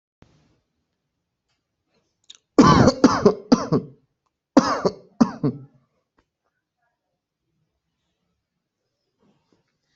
{"expert_labels": [{"quality": "ok", "cough_type": "wet", "dyspnea": false, "wheezing": false, "stridor": false, "choking": false, "congestion": false, "nothing": true, "diagnosis": "COVID-19", "severity": "mild"}], "age": 26, "gender": "male", "respiratory_condition": false, "fever_muscle_pain": false, "status": "symptomatic"}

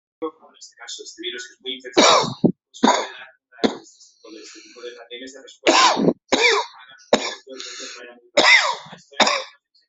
{"expert_labels": [{"quality": "good", "cough_type": "unknown", "dyspnea": false, "wheezing": false, "stridor": false, "choking": false, "congestion": false, "nothing": true, "diagnosis": "obstructive lung disease", "severity": "unknown"}], "age": 56, "gender": "male", "respiratory_condition": true, "fever_muscle_pain": false, "status": "COVID-19"}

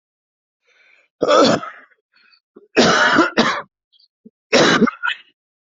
{"expert_labels": [{"quality": "good", "cough_type": "wet", "dyspnea": false, "wheezing": false, "stridor": false, "choking": false, "congestion": false, "nothing": true, "diagnosis": "lower respiratory tract infection", "severity": "severe"}], "age": 36, "gender": "male", "respiratory_condition": false, "fever_muscle_pain": false, "status": "healthy"}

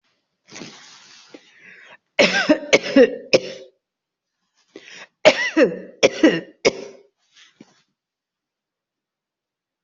{"expert_labels": [{"quality": "good", "cough_type": "wet", "dyspnea": false, "wheezing": false, "stridor": false, "choking": false, "congestion": false, "nothing": true, "diagnosis": "lower respiratory tract infection", "severity": "mild"}], "age": 76, "gender": "female", "respiratory_condition": false, "fever_muscle_pain": false, "status": "COVID-19"}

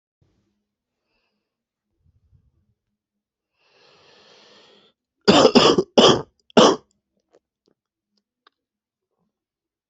{"expert_labels": [{"quality": "good", "cough_type": "wet", "dyspnea": false, "wheezing": false, "stridor": false, "choking": false, "congestion": true, "nothing": false, "diagnosis": "upper respiratory tract infection", "severity": "mild"}], "age": 24, "gender": "male", "respiratory_condition": true, "fever_muscle_pain": true, "status": "symptomatic"}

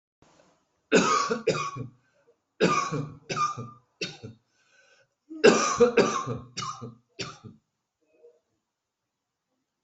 {"expert_labels": [{"quality": "ok", "cough_type": "dry", "dyspnea": false, "wheezing": false, "stridor": false, "choking": false, "congestion": false, "nothing": true, "diagnosis": "COVID-19", "severity": "mild"}], "age": 41, "gender": "female", "respiratory_condition": false, "fever_muscle_pain": false, "status": "symptomatic"}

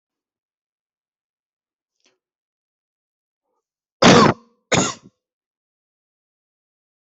{"expert_labels": [{"quality": "good", "cough_type": "wet", "dyspnea": false, "wheezing": false, "stridor": false, "choking": false, "congestion": false, "nothing": true, "diagnosis": "lower respiratory tract infection", "severity": "mild"}], "age": 30, "gender": "male", "respiratory_condition": false, "fever_muscle_pain": false, "status": "healthy"}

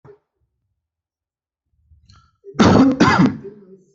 {"expert_labels": [{"quality": "good", "cough_type": "wet", "dyspnea": false, "wheezing": false, "stridor": false, "choking": false, "congestion": false, "nothing": true, "diagnosis": "lower respiratory tract infection", "severity": "mild"}], "age": 33, "gender": "male", "respiratory_condition": true, "fever_muscle_pain": false, "status": "symptomatic"}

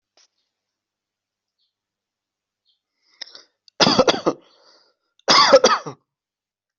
{"expert_labels": [{"quality": "good", "cough_type": "dry", "dyspnea": false, "wheezing": false, "stridor": false, "choking": false, "congestion": false, "nothing": true, "diagnosis": "healthy cough", "severity": "pseudocough/healthy cough"}], "age": 30, "gender": "male", "respiratory_condition": false, "fever_muscle_pain": false, "status": "healthy"}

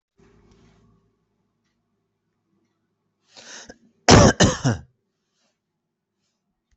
{"expert_labels": [{"quality": "ok", "cough_type": "dry", "dyspnea": false, "wheezing": false, "stridor": false, "choking": false, "congestion": false, "nothing": true, "diagnosis": "upper respiratory tract infection", "severity": "unknown"}], "age": 26, "gender": "female", "respiratory_condition": false, "fever_muscle_pain": false, "status": "healthy"}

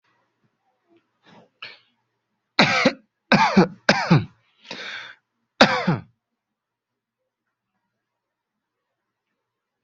{"expert_labels": [{"quality": "good", "cough_type": "dry", "dyspnea": false, "wheezing": false, "stridor": false, "choking": false, "congestion": false, "nothing": true, "diagnosis": "COVID-19", "severity": "mild"}], "age": 27, "gender": "male", "respiratory_condition": false, "fever_muscle_pain": false, "status": "COVID-19"}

